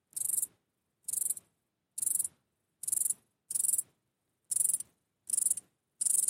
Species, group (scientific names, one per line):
Stauroderus scalaris
Orthoptera